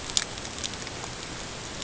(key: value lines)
label: ambient
recorder: HydroMoth